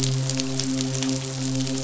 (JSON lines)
{"label": "biophony, midshipman", "recorder": "SoundTrap 500"}